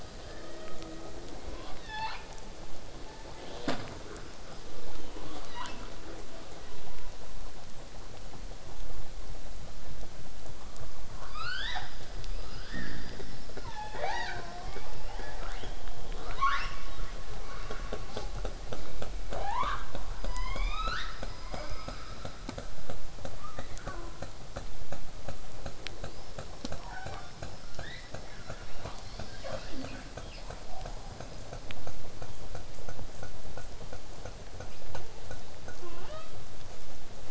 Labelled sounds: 0.2	1.1	killer whale, southern resident, 1.0 to 3.7 kHz
1.5	2.2	killer whale, southern resident, 0.54 to 6.0 kHz
6.1	11.1	abiotic sound, 0 to 8.0 kHz
11.3	11.9	killer whale, southern resident, L pod, call S19, 0.58 to 8.0 kHz
12.3	13.1	killer whale, southern resident, L pod, call S19, 0.07 to 6.1 kHz
13.6	14.8	killer whale, southern resident, 0.29 to 7.0 kHz
18.1	18.3	killer whale, southern resident, J pod, call S05, 0.65 to 8.0 kHz
19.3	19.9	killer whale, southern resident, L pod, call S19, 0.25 to 7.5 kHz
20.2	22.4	killer whale, southern resident, L pod, call S19, 0.47 to 8.0 kHz
21.5	21.7	killer whale, southern resident, J pod, call S05, 0.27 to 3.9 kHz
23.4	24.3	killer whale, southern resident, 0.18 to 2.3 kHz
26.0	27.3	killer whale, southern resident, 0.33 to 5.7 kHz
27.7	30.6	killer whale, southern resident, 0.18 to 5.7 kHz
35.7	36.4	killer whale, southern resident, L pod, call S18, 0.11 to 5.3 kHz

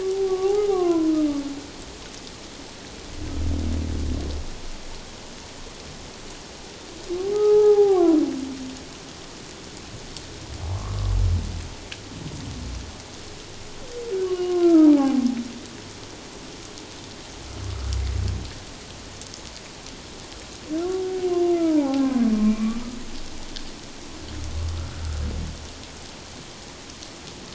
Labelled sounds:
7.3	8.2	humpback whale, 0.78 to 1.3 kHz
10.7	11.1	humpback whale, 1.0 to 1.3 kHz
14.2	15.2	humpback whale, 0.78 to 3.0 kHz
21.6	22.8	humpback whale, 0.78 to 1.2 kHz

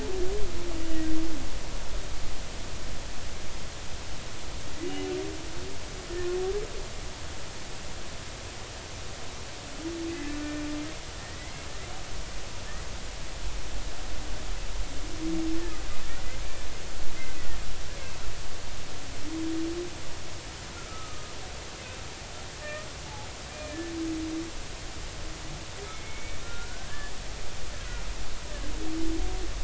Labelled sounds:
4.8	5.1	humpback whale, 2.7 to 2.9 kHz
10.1	10.4	humpback whale, 1.7 to 1.8 kHz
11.4	11.7	humpback whale, 1.9 to 2.2 kHz
20.9	21.3	humpback whale, 1.2 to 1.3 kHz
22.6	22.9	humpback whale, 1.7 to 1.9 kHz
23.5	23.9	humpback whale, 1.7 to 2.5 kHz
25.9	27.1	humpback whale, 1.3 to 2.4 kHz

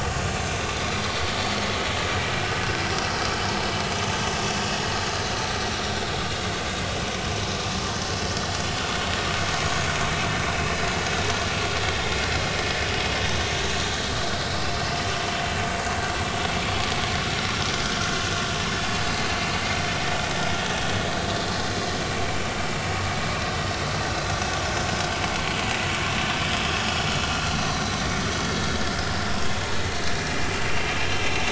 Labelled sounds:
1.1	1.3	vessel noise, 4.4 to 4.6 kHz
9.6	9.8	vessel noise, 6.7 to 6.8 kHz
15.0	15.3	vessel noise, 2.9 to 3.1 kHz
15.7	16.0	vessel noise, 4.5 to 4.7 kHz
27.4	28.8	vessel noise, 3.7 to 6.2 kHz
30.2	30.9	vessel noise, 2.6 to 2.9 kHz

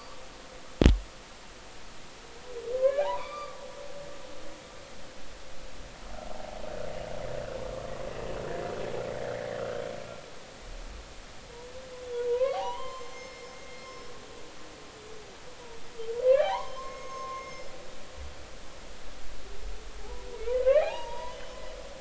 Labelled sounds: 2.8	3.6	humpback whale, 0.80 to 3.6 kHz
12.3	13.5	humpback whale, 0.80 to 5.4 kHz
13.8	14.1	humpback whale, 5.2 to 5.3 kHz
16.2	17.7	humpback whale, 0.80 to 6.5 kHz
20.0	21.6	humpback whale, 0.80 to 3.1 kHz

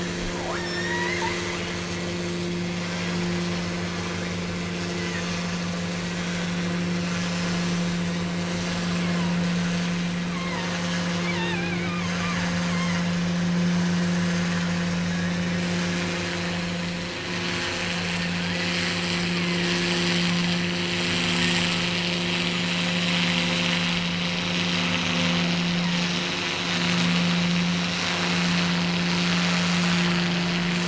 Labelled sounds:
0.3	1.5	killer whale, offshore, 0.43 to 7.7 kHz
2.8	3.4	killer whale, offshore, 1.4 to 3.7 kHz
4.9	5.3	killer whale, offshore, 1.5 to 3.2 kHz
8.9	9.4	killer whale, offshore, 0.84 to 2.6 kHz
10.2	13.4	killer whale, offshore, 0.48 to 4.5 kHz
15.0	16.5	killer whale, offshore, 1.3 to 3.4 kHz
18.3	20.1	killer whale, offshore, 0.80 to 3.1 kHz
25.7	26.2	killer whale, offshore, 0.61 to 2.2 kHz

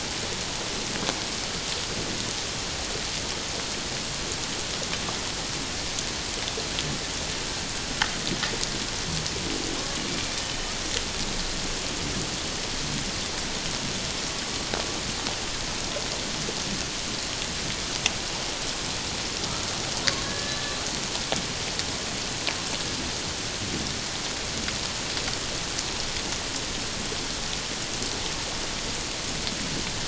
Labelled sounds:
20.2	20.7	killer whale, Bigg's (transient), call T11, 1.6 to 1.8 kHz

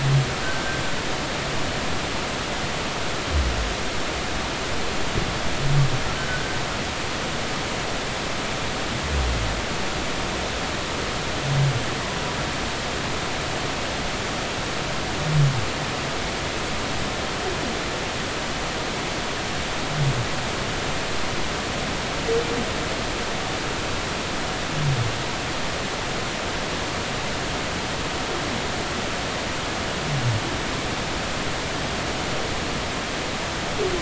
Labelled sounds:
0.4	0.8	humpback whale, 1.5 to 1.6 kHz
6.2	6.6	humpback whale, 1.4 to 1.6 kHz

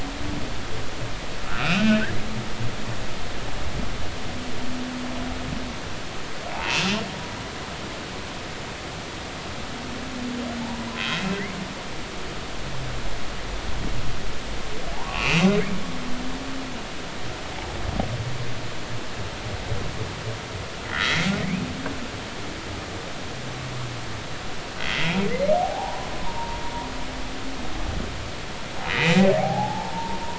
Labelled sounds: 1.6	2.0	humpback whale, 2.3 to 2.9 kHz
6.5	7.0	humpback whale, 0.80 to 2.9 kHz
10.6	11.6	humpback whale, 0.83 to 2.8 kHz
14.9	15.5	humpback whale, 0.80 to 2.8 kHz
20.8	21.3	humpback whale, 1.8 to 2.2 kHz
24.8	26.6	humpback whale, 0.80 to 2.3 kHz
28.9	30.2	humpback whale, 0.80 to 2.6 kHz

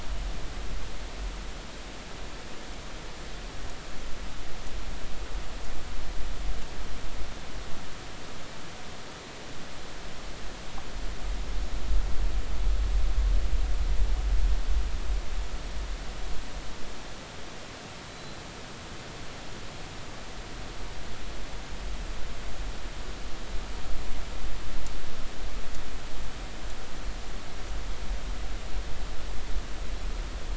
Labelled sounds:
18.1	18.4	Pacific white-sided dolphin, 3.9 to 4.1 kHz

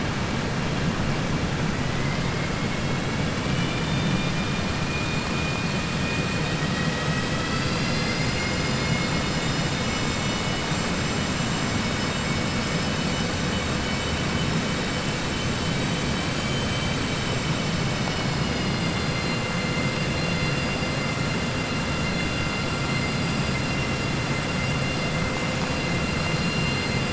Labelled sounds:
3.4	4.7	vessel noise, 1.8 to 3.7 kHz
5.9	7.2	vessel noise, 1.3 to 4.5 kHz

